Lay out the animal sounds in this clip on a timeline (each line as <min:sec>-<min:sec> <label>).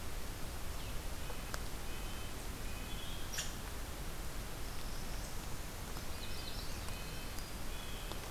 0:01.0-0:03.3 Red-breasted Nuthatch (Sitta canadensis)
0:04.4-0:05.7 Black-throated Blue Warbler (Setophaga caerulescens)
0:05.9-0:06.8 Magnolia Warbler (Setophaga magnolia)
0:05.9-0:08.3 Red-breasted Nuthatch (Sitta canadensis)